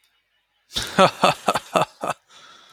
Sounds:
Laughter